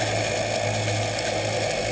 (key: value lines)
label: anthrophony, boat engine
recorder: HydroMoth